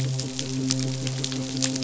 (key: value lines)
label: biophony, midshipman
recorder: SoundTrap 500

label: biophony
recorder: SoundTrap 500